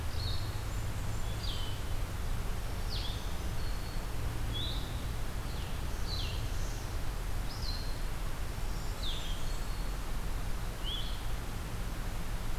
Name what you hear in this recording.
Blackburnian Warbler, Blue-headed Vireo, Black-throated Green Warbler